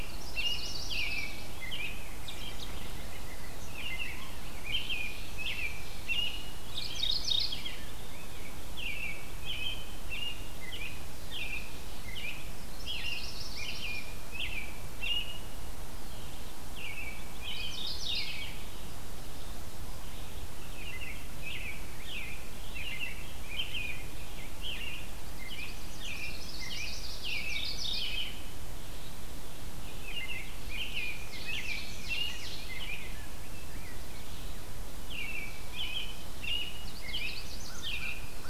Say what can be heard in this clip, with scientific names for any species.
Setophaga coronata, Turdus migratorius, Seiurus aurocapilla, Pheucticus ludovicianus, Geothlypis philadelphia